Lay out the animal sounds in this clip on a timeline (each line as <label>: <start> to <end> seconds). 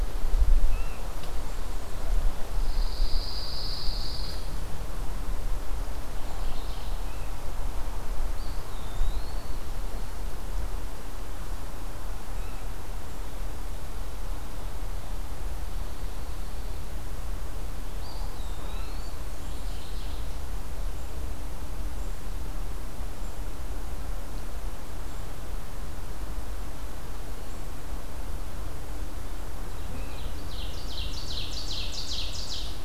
unidentified call: 0.6 to 1.1 seconds
Pine Warbler (Setophaga pinus): 2.5 to 4.4 seconds
Mourning Warbler (Geothlypis philadelphia): 6.0 to 7.1 seconds
Eastern Wood-Pewee (Contopus virens): 8.4 to 9.6 seconds
Eastern Wood-Pewee (Contopus virens): 17.8 to 19.3 seconds
Mourning Warbler (Geothlypis philadelphia): 19.3 to 20.3 seconds
Ovenbird (Seiurus aurocapilla): 29.5 to 32.8 seconds